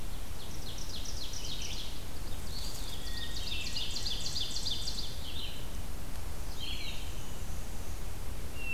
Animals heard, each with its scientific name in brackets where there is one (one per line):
Black-and-white Warbler (Mniotilta varia)
Ovenbird (Seiurus aurocapilla)
Hermit Thrush (Catharus guttatus)
Eastern Wood-Pewee (Contopus virens)
Red-eyed Vireo (Vireo olivaceus)